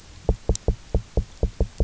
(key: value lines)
label: biophony, knock
recorder: SoundTrap 300